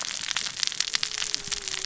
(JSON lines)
{"label": "biophony, cascading saw", "recorder": "SoundTrap 600 or HydroMoth"}